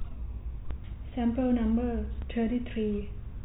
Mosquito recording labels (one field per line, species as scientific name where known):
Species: no mosquito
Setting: cup